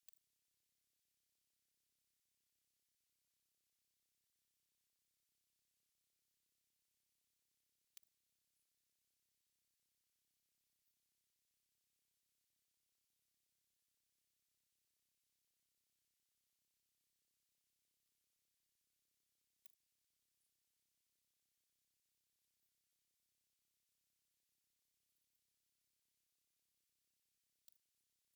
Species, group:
Poecilimon jonicus
Orthoptera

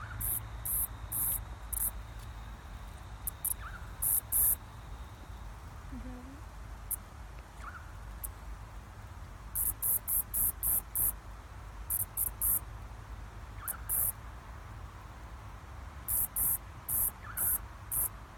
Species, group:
Atrapsalta fuscata
Cicadidae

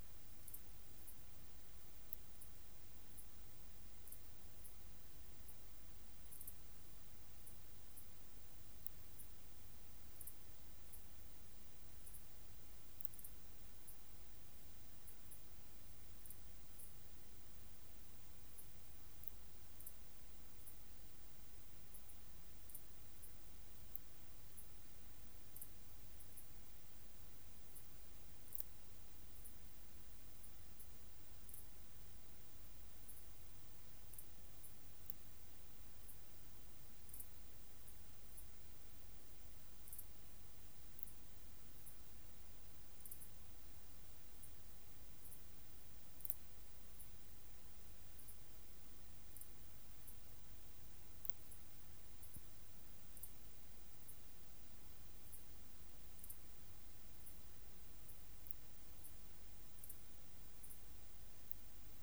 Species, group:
Parasteropleurus martorellii
Orthoptera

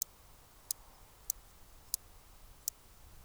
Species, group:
Stethophyma grossum
Orthoptera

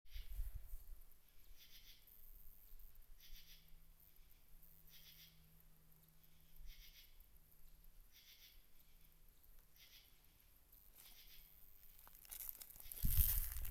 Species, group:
Pterophylla camellifolia
Orthoptera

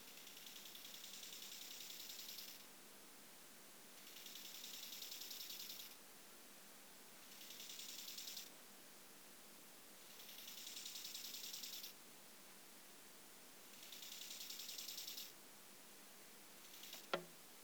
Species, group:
Chorthippus biguttulus
Orthoptera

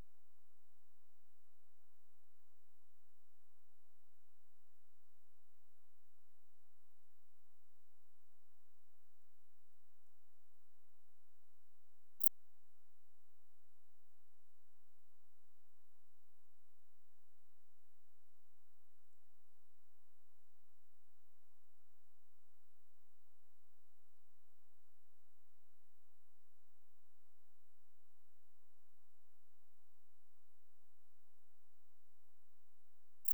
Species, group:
Pholidoptera griseoaptera
Orthoptera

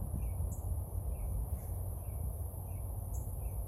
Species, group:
Neoconocephalus triops
Orthoptera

